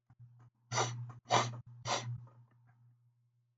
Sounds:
Sniff